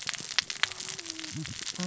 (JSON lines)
{"label": "biophony, cascading saw", "recorder": "SoundTrap 600 or HydroMoth"}